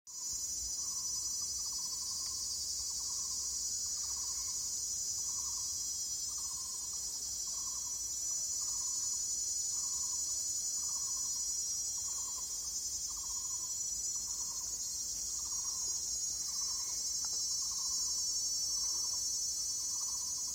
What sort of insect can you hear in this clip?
cicada